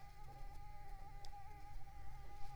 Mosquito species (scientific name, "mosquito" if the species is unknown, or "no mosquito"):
Mansonia uniformis